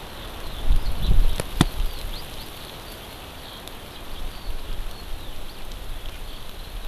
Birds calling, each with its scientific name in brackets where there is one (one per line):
Eurasian Skylark (Alauda arvensis)